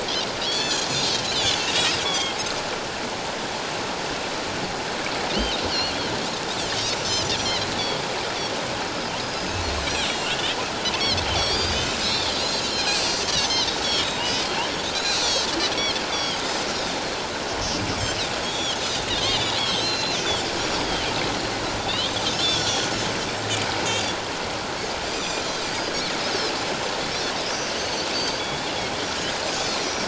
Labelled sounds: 0.5	1.6	Pacific white-sided dolphin, 1.4 to 4.6 kHz
2.0	2.4	Pacific white-sided dolphin, 1.0 to 8.0 kHz
5.7	5.9	Pacific white-sided dolphin, 5.5 to 5.8 kHz
7.4	7.7	Pacific white-sided dolphin, 3.8 to 4.3 kHz
9.2	10.4	Pacific white-sided dolphin, 2.7 to 6.8 kHz
11.4	13.0	Pacific white-sided dolphin, 2.4 to 7.0 kHz
14.2	14.5	Pacific white-sided dolphin, 2.8 to 3.1 kHz
14.9	15.5	Pacific white-sided dolphin, 3.8 to 6.9 kHz
16.0	16.4	Pacific white-sided dolphin, 3.0 to 6.5 kHz
18.4	20.2	Pacific white-sided dolphin, 2.7 to 7.5 kHz
21.8	22.9	Pacific white-sided dolphin, 2.6 to 7.9 kHz
25.1	25.4	Pacific white-sided dolphin, 2.3 to 7.4 kHz
27.8	28.7	Pacific white-sided dolphin, 3.3 to 6.4 kHz
29.4	30.0	Pacific white-sided dolphin, 5.5 to 6.8 kHz

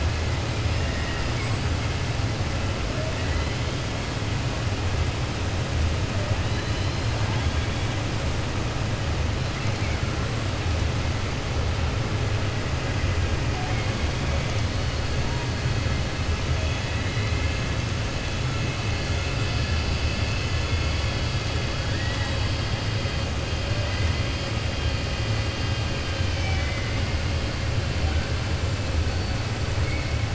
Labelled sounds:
3.2	3.5	killer whale, 1.3 to 2.9 kHz
6.4	7.1	killer whale, 3.0 to 5.1 kHz
26.0	27.1	killer whale, 1.2 to 6.2 kHz
29.8	30.2	killer whale, 2.1 to 2.6 kHz

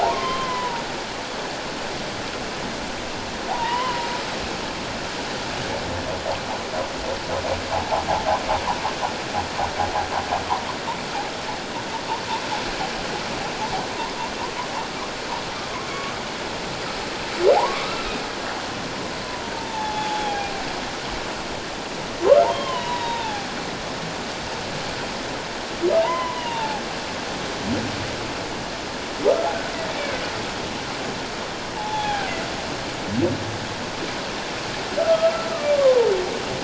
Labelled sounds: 0.0	0.8	humpback whale, 0.78 to 3.2 kHz
3.5	4.1	humpback whale, 0.78 to 3.2 kHz
17.5	18.1	humpback whale, 0.78 to 1.4 kHz
19.3	20.5	humpback whale, 0.78 to 3.5 kHz
22.4	23.5	humpback whale, 0.78 to 3.9 kHz
26.0	26.8	humpback whale, 0.78 to 3.1 kHz
30.0	30.2	humpback whale, 1.9 to 2.4 kHz
31.7	32.3	humpback whale, 0.78 to 3.5 kHz
35.0	36.1	humpback whale, 0.84 to 1.5 kHz

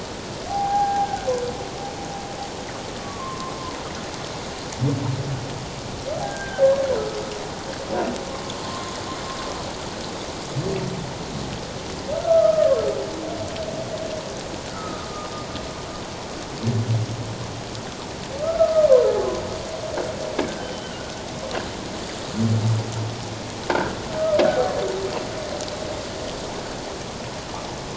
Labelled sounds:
0.5	1.3	humpback whale, 0.78 to 1.7 kHz
3.0	3.5	humpback whale, 1.0 to 1.2 kHz
6.2	6.7	humpback whale, 1.5 to 1.7 kHz
12.2	12.7	humpback whale, 1.2 to 1.5 kHz
14.7	15.3	humpback whale, 1.2 to 1.5 kHz
18.4	18.9	humpback whale, 1.2 to 1.4 kHz
20.6	21.2	humpback whale, 1.4 to 3.1 kHz
23.7	24.0	humpback whale, 1.3 to 1.7 kHz

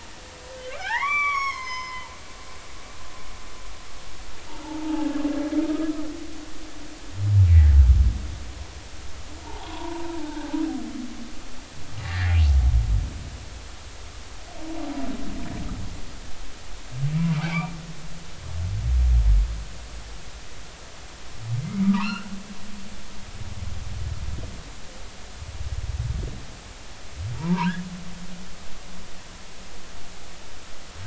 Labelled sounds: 0.6	2.1	humpback whale, 0.80 to 6.8 kHz
4.5	5.1	humpback whale, 0.80 to 0.99 kHz
5.6	5.9	humpback whale, 1.2 to 1.3 kHz
7.5	7.7	humpback whale, 1.6 to 2.1 kHz
9.4	10.3	humpback whale, 0.80 to 1.2 kHz
12.0	12.4	humpback whale, 1.6 to 2.2 kHz
17.3	17.7	humpback whale, 2.2 to 2.5 kHz
21.6	22.3	humpback whale, 0.83 to 2.9 kHz
28.3	28.7	humpback whale, 0.83 to 1.3 kHz

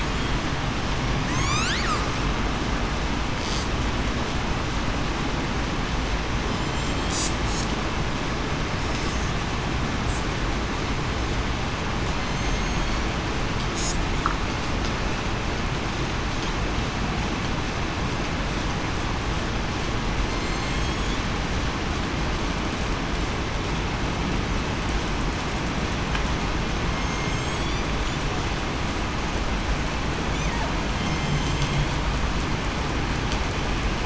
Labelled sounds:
1.3	1.7	killer whale, southern resident, 1.9 to 8.0 kHz
6.5	7.1	killer whale, southern resident, 7.1 to 7.5 kHz
12.2	12.5	killer whale, southern resident, 4.1 to 4.2 kHz
20.2	20.9	killer whale, southern resident, 4.1 to 6.5 kHz
27.0	27.7	killer whale, southern resident, 6.3 to 6.8 kHz
31.1	31.7	killer whale, southern resident, 3.1 to 7.4 kHz

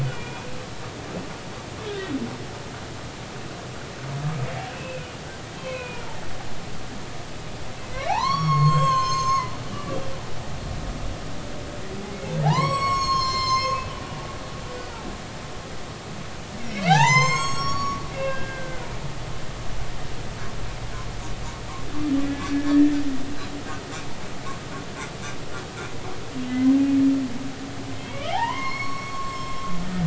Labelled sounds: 0.0	0.5	humpback whale, 2.3 to 3.1 kHz
1.9	2.1	humpback whale, 1.5 to 1.7 kHz
4.7	5.1	humpback whale, 2.4 to 2.7 kHz
5.6	6.1	humpback whale, 0.90 to 2.7 kHz
7.9	10.0	humpback whale, 0.80 to 7.6 kHz
12.4	13.9	humpback whale, 0.80 to 7.8 kHz
16.7	18.9	humpback whale, 0.80 to 7.8 kHz
22.5	23.0	humpback whale, 1.7 to 1.9 kHz
26.5	26.7	humpback whale, 2.0 to 2.1 kHz
27.9	29.6	humpback whale, 0.80 to 7.6 kHz

